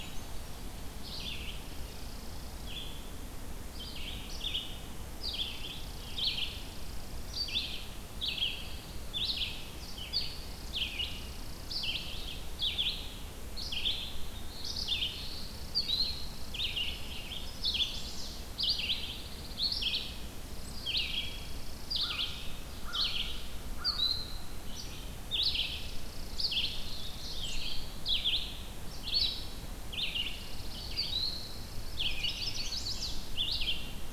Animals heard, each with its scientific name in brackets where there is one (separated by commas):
Brown Creeper (Certhia americana), Red-eyed Vireo (Vireo olivaceus), Chipping Sparrow (Spizella passerina), Chimney Swift (Chaetura pelagica), Pine Warbler (Setophaga pinus)